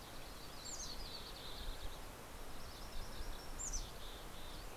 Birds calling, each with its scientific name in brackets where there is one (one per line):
MacGillivray's Warbler (Geothlypis tolmiei)
Yellow-rumped Warbler (Setophaga coronata)
Mountain Chickadee (Poecile gambeli)